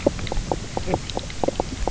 {"label": "biophony, knock croak", "recorder": "SoundTrap 300"}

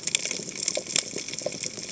{"label": "biophony, cascading saw", "recorder": "HydroMoth"}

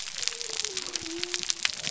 {"label": "biophony", "recorder": "SoundTrap 300"}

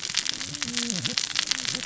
{"label": "biophony, cascading saw", "recorder": "SoundTrap 600 or HydroMoth"}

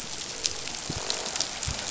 {"label": "biophony", "recorder": "SoundTrap 500"}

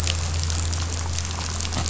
{"label": "anthrophony, boat engine", "recorder": "SoundTrap 500"}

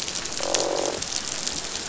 {"label": "biophony, croak", "recorder": "SoundTrap 500"}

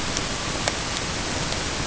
{"label": "ambient", "recorder": "HydroMoth"}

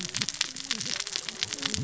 {"label": "biophony, cascading saw", "recorder": "SoundTrap 600 or HydroMoth"}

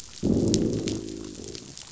{"label": "biophony, growl", "recorder": "SoundTrap 500"}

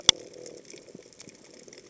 {"label": "biophony", "recorder": "HydroMoth"}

